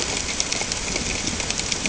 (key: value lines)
label: ambient
recorder: HydroMoth